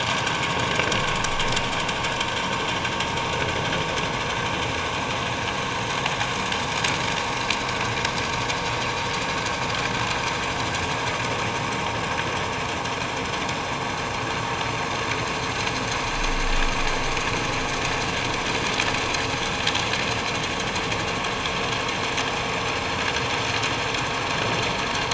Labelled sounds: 1.1	1.4	vessel noise, 1.3 to 1.5 kHz

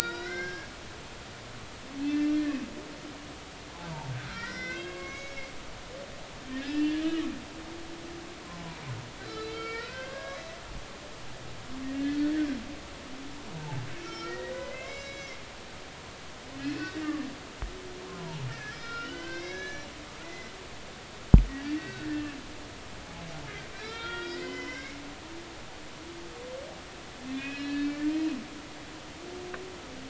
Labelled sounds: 0.2	0.7	humpback whale, 1.9 to 6.0 kHz
1.0	2.6	humpback whale, 1.3 to 4.9 kHz
4.2	5.5	humpback whale, 1.1 to 6.1 kHz
6.6	7.2	humpback whale, 1.6 to 2.8 kHz
9.2	10.4	humpback whale, 1.1 to 5.5 kHz
11.9	12.3	humpback whale, 1.6 to 4.5 kHz
13.5	15.4	humpback whale, 0.80 to 7.3 kHz
16.6	17.0	humpback whale, 1.6 to 2.7 kHz
18.1	19.9	humpback whale, 0.83 to 6.3 kHz
20.2	20.5	humpback whale, 1.9 to 2.1 kHz
21.7	22.1	humpback whale, 1.4 to 2.8 kHz
23.0	25.0	humpback whale, 1.3 to 4.8 kHz
27.3	28.0	humpback whale, 1.6 to 4.4 kHz

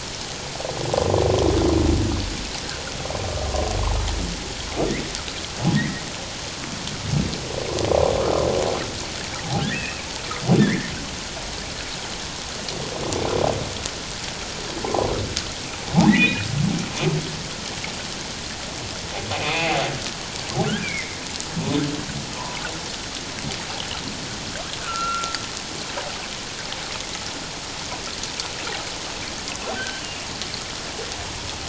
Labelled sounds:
5.7	6.0	humpback whale, 1.6 to 2.2 kHz
9.6	10.9	humpback whale, 1.5 to 2.7 kHz
16.1	16.5	humpback whale, 1.7 to 2.6 kHz
19.3	19.8	humpback whale, 0.78 to 2.7 kHz
20.7	21.2	humpback whale, 1.3 to 2.5 kHz
22.4	22.6	humpback whale, 0.88 to 1.1 kHz
24.8	25.4	humpback whale, 1.2 to 2.9 kHz
29.7	30.0	humpback whale, 1.4 to 1.7 kHz

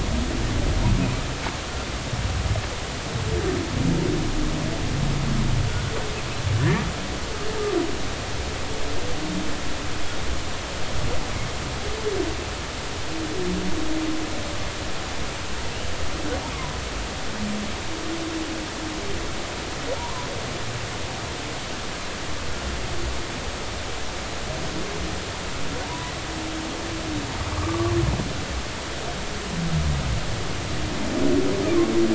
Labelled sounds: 6.6	6.9	humpback whale, 1.7 to 2.0 kHz
20.0	20.3	humpback whale, 0.86 to 1.1 kHz
25.8	26.1	humpback whale, 0.90 to 1.1 kHz
27.5	27.9	humpback whale, 0.99 to 1.3 kHz

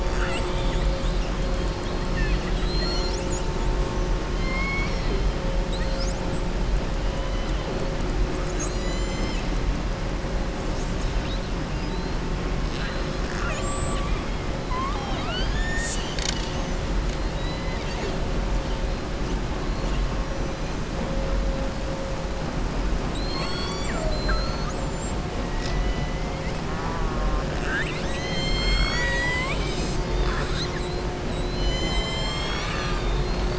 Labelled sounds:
0.0	1.3	killer whale, southern resident, 0.79 to 8.0 kHz
2.0	3.5	killer whale, southern resident, 1.4 to 7.9 kHz
4.3	5.2	killer whale, southern resident, 1.1 to 5.7 kHz
12.6	14.0	killer whale, southern resident, 1.4 to 7.8 kHz
17.2	18.2	killer whale, southern resident, 1.8 to 5.5 kHz
31.3	33.5	killer whale, southern resident, 1.0 to 7.9 kHz

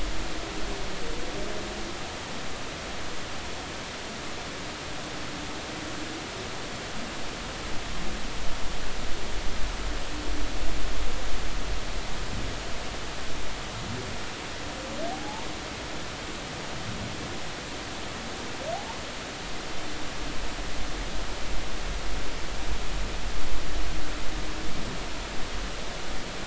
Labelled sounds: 15.1	15.5	humpback whale, 0.80 to 0.99 kHz

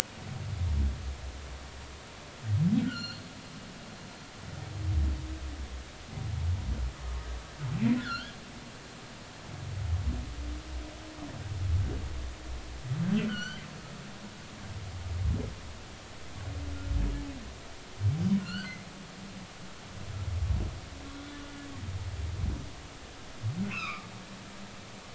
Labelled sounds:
2.8	3.2	humpback whale, 1.3 to 4.7 kHz
8.0	8.3	humpback whale, 1.3 to 1.9 kHz
13.3	13.6	humpback whale, 1.3 to 4.7 kHz
18.4	18.8	humpback whale, 1.3 to 4.7 kHz
21.2	21.5	humpback whale, 3.4 to 3.5 kHz
23.7	24.1	humpback whale, 0.99 to 5.3 kHz

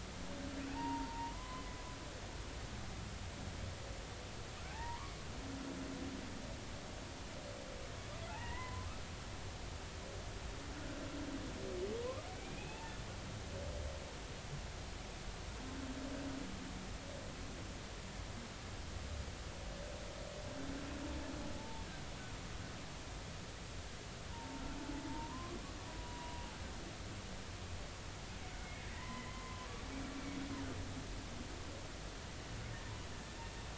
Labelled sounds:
0.7	1.7	humpback whale, 0.80 to 1.1 kHz
4.7	5.1	humpback whale, 0.80 to 2.0 kHz
8.3	8.9	humpback whale, 0.80 to 2.1 kHz
12.0	12.8	humpback whale, 0.93 to 2.7 kHz
21.5	21.9	humpback whale, 0.83 to 0.96 kHz
24.3	25.6	humpback whale, 0.86 to 1.2 kHz
25.9	26.5	humpback whale, 0.93 to 0.99 kHz
28.9	29.6	humpback whale, 0.90 to 2.1 kHz

